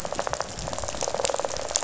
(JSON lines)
{"label": "biophony, rattle", "recorder": "SoundTrap 500"}